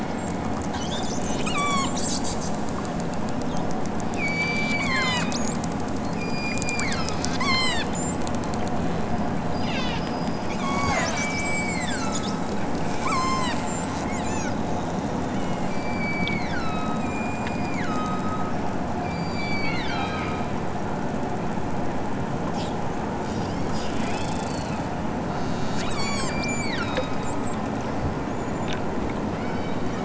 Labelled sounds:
1.1	1.9	killer whale, southern Alaska resident, 0.83 to 8.0 kHz
4.2	5.3	killer whale, southern Alaska resident, 0.55 to 8.0 kHz
6.1	7.9	killer whale, southern Alaska resident, 0.78 to 8.0 kHz
9.6	10.1	killer whale, southern Alaska resident, 1.0 to 7.1 kHz
10.6	12.4	killer whale, southern Alaska resident, 0.37 to 7.9 kHz
13.1	13.6	killer whale, southern Alaska resident, 0.69 to 7.3 kHz
14.1	14.7	killer whale, southern Alaska resident, 1.2 to 7.9 kHz
15.2	18.6	killer whale, southern Alaska resident, 0.97 to 8.0 kHz
19.0	20.6	killer whale, southern Alaska resident, 0.97 to 7.4 kHz
23.8	24.7	killer whale, southern Alaska resident, 1.8 to 5.8 kHz
25.3	27.2	killer whale, southern Alaska resident, 1.1 to 8.0 kHz
29.2	30.0	killer whale, southern Alaska resident, 1.6 to 6.6 kHz

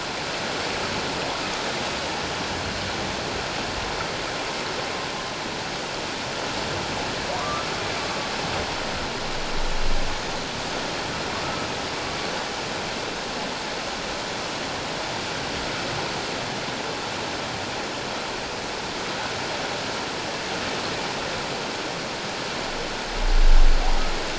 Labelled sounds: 7.3	7.7	humpback whale, 0.88 to 1.4 kHz

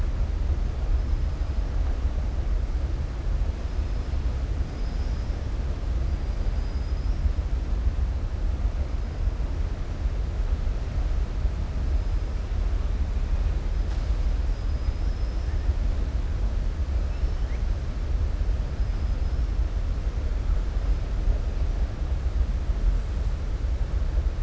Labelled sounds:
6.4	7.2	killer whale, southern resident, 4.5 to 5.6 kHz
14.4	15.5	killer whale, southern resident, 4.9 to 5.9 kHz

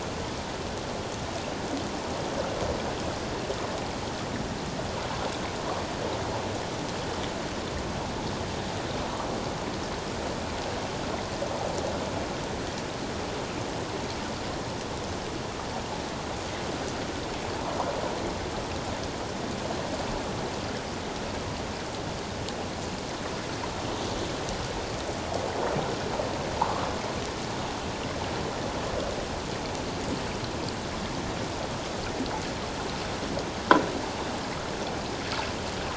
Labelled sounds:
26.6	26.9	water noise, 0.81 to 1.3 kHz

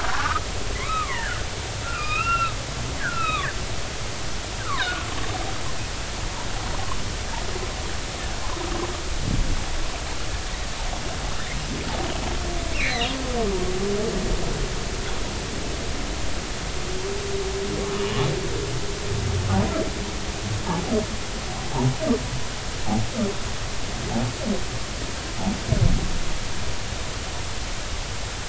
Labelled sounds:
0.1	1.4	humpback whale, 0.86 to 2.6 kHz
1.8	3.5	humpback whale, 1.1 to 5.0 kHz
4.6	5.0	humpback whale, 0.96 to 2.3 kHz
12.7	13.1	humpback whale, 1.7 to 4.3 kHz
17.9	18.2	humpback whale, 2.8 to 3.1 kHz

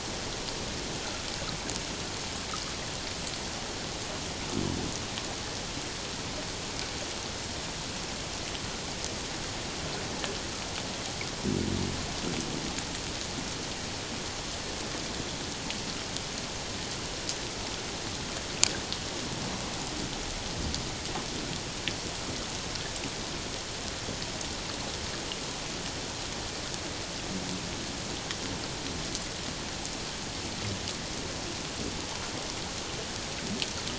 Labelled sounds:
1.0	1.3	water noise, 1.2 to 1.6 kHz

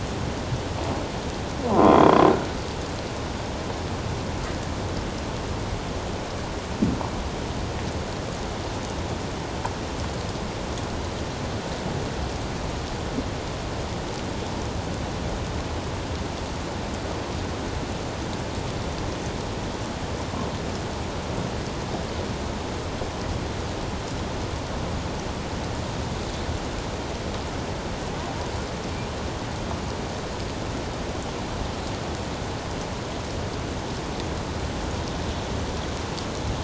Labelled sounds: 1.7	2.2	croaking sound likely from a nearby submerged object, 0.91 to 3.5 kHz

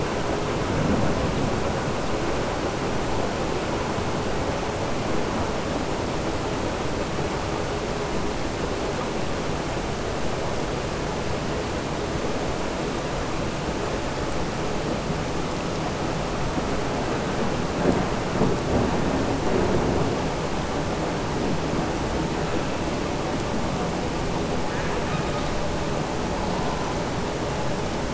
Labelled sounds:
24.6	25.4	killer whale, southern resident, 1.1 to 2.7 kHz

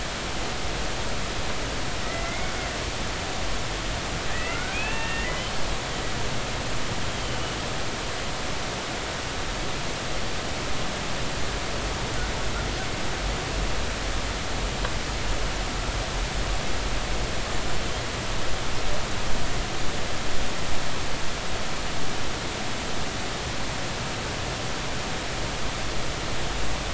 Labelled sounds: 2.0	2.5	humpback whale, 1.9 to 2.3 kHz
4.3	5.5	humpback whale, 1.3 to 2.8 kHz
7.1	7.4	humpback whale, 3.0 to 3.3 kHz
17.5	17.8	humpback whale, 7.1 to 7.2 kHz

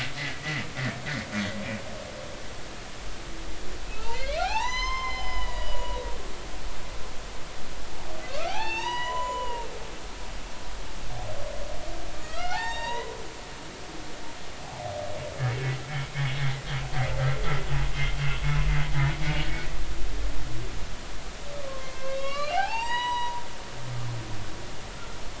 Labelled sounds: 0.2	0.6	humpback whale, 1.9 to 2.0 kHz
3.9	6.0	humpback whale, 0.80 to 7.2 kHz
8.3	9.7	humpback whale, 0.80 to 7.0 kHz
12.1	13.1	humpback whale, 0.80 to 7.5 kHz
19.1	19.5	humpback whale, 2.2 to 2.4 kHz
21.6	23.4	humpback whale, 0.80 to 7.9 kHz
24.0	24.3	humpback whale, 5.7 to 5.9 kHz

